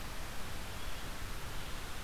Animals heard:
forest ambience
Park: Marsh-Billings-Rockefeller National Historical Park